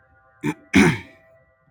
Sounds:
Throat clearing